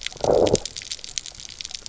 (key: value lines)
label: biophony, low growl
recorder: SoundTrap 300